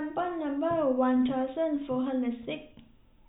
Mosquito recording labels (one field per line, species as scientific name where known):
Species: no mosquito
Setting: cup